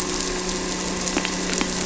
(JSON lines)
{"label": "anthrophony, boat engine", "recorder": "SoundTrap 300"}